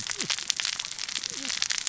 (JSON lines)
{"label": "biophony, cascading saw", "recorder": "SoundTrap 600 or HydroMoth"}